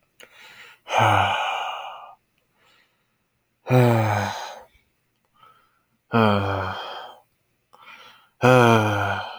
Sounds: Sigh